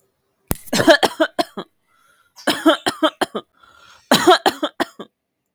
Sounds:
Cough